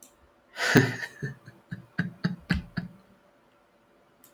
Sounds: Laughter